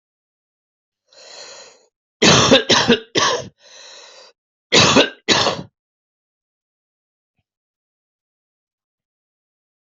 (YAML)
expert_labels:
- quality: good
  cough_type: wet
  dyspnea: true
  wheezing: false
  stridor: true
  choking: false
  congestion: false
  nothing: false
  diagnosis: lower respiratory tract infection
  severity: severe
age: 40
gender: male
respiratory_condition: false
fever_muscle_pain: false
status: symptomatic